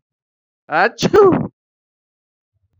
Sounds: Sneeze